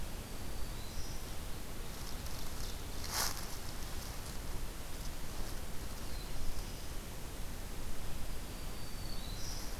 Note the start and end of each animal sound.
0.1s-1.6s: Black-throated Green Warbler (Setophaga virens)
1.7s-3.3s: Ovenbird (Seiurus aurocapilla)
5.8s-7.1s: Black-throated Blue Warbler (Setophaga caerulescens)
8.4s-9.8s: Black-throated Green Warbler (Setophaga virens)

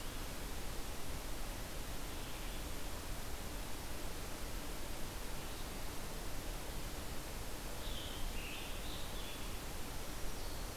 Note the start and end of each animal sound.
0.0s-10.8s: Red-eyed Vireo (Vireo olivaceus)
7.7s-9.4s: Scarlet Tanager (Piranga olivacea)
9.9s-10.8s: Black-throated Green Warbler (Setophaga virens)

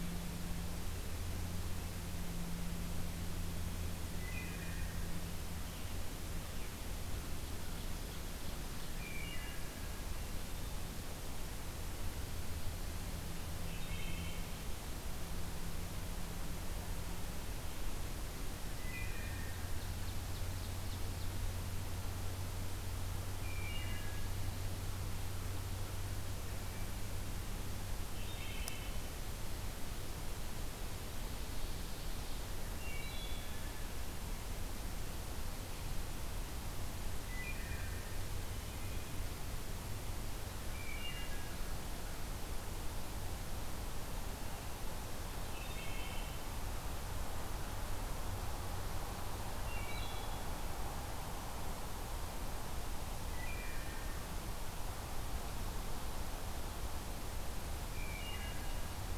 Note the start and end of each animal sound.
4.0s-5.1s: Wood Thrush (Hylocichla mustelina)
8.9s-9.9s: Wood Thrush (Hylocichla mustelina)
13.6s-14.5s: Wood Thrush (Hylocichla mustelina)
18.7s-19.8s: Wood Thrush (Hylocichla mustelina)
19.1s-21.6s: Ovenbird (Seiurus aurocapilla)
23.4s-24.4s: Wood Thrush (Hylocichla mustelina)
28.1s-29.0s: Wood Thrush (Hylocichla mustelina)
31.0s-32.6s: Ovenbird (Seiurus aurocapilla)
32.7s-33.8s: Wood Thrush (Hylocichla mustelina)
37.2s-38.0s: Wood Thrush (Hylocichla mustelina)
40.7s-41.6s: Wood Thrush (Hylocichla mustelina)
45.4s-46.5s: Wood Thrush (Hylocichla mustelina)
49.4s-50.5s: Wood Thrush (Hylocichla mustelina)
53.3s-54.0s: Wood Thrush (Hylocichla mustelina)
57.9s-59.0s: Wood Thrush (Hylocichla mustelina)

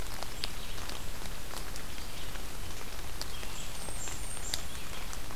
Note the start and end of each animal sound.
0.0s-5.4s: Red-eyed Vireo (Vireo olivaceus)
3.4s-5.0s: Blackburnian Warbler (Setophaga fusca)

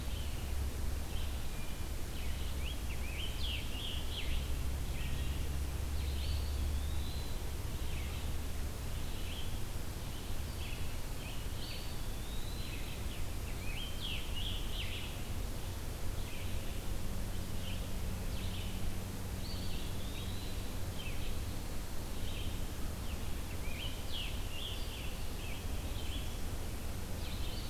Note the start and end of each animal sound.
0.0s-18.7s: Red-eyed Vireo (Vireo olivaceus)
1.4s-1.9s: Wood Thrush (Hylocichla mustelina)
2.0s-4.5s: Scarlet Tanager (Piranga olivacea)
5.9s-7.6s: Eastern Wood-Pewee (Contopus virens)
11.2s-13.2s: Eastern Wood-Pewee (Contopus virens)
12.9s-15.5s: Scarlet Tanager (Piranga olivacea)
19.1s-27.7s: Red-eyed Vireo (Vireo olivaceus)
19.3s-21.1s: Eastern Wood-Pewee (Contopus virens)
23.0s-26.3s: Scarlet Tanager (Piranga olivacea)

